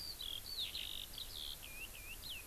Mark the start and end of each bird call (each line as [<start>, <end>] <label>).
[0.00, 2.47] Eurasian Skylark (Alauda arvensis)